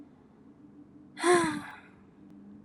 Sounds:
Sigh